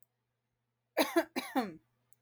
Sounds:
Cough